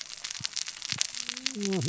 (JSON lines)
{"label": "biophony, cascading saw", "recorder": "SoundTrap 600 or HydroMoth"}